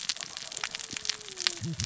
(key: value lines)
label: biophony, cascading saw
recorder: SoundTrap 600 or HydroMoth